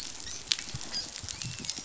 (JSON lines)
{"label": "biophony, dolphin", "recorder": "SoundTrap 500"}